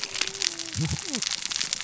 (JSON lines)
{"label": "biophony, cascading saw", "recorder": "SoundTrap 600 or HydroMoth"}